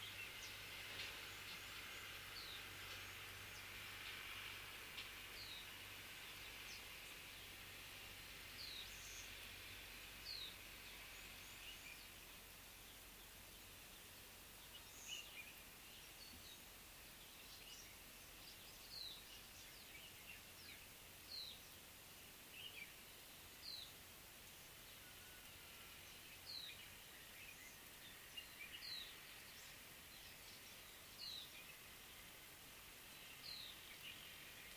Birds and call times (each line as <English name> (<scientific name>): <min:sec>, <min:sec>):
Pale White-eye (Zosterops flavilateralis): 0:08.7, 0:21.4, 0:31.3